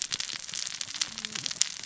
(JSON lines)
{"label": "biophony, cascading saw", "recorder": "SoundTrap 600 or HydroMoth"}